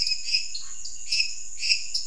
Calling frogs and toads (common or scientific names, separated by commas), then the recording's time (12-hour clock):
lesser tree frog, dwarf tree frog, Scinax fuscovarius
10:30pm